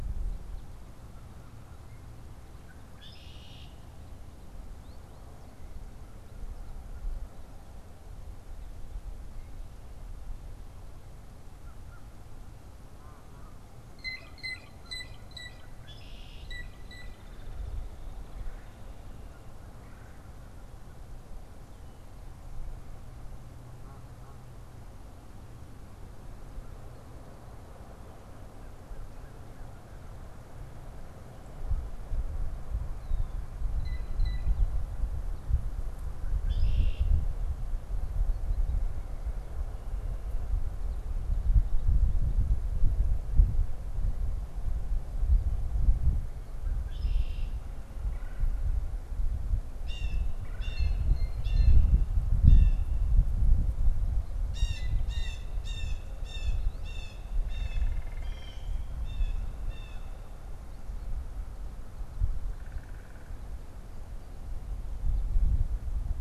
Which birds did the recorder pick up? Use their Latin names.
Agelaius phoeniceus, Corvus brachyrhynchos, Branta canadensis, Cyanocitta cristata, Melanerpes carolinus, unidentified bird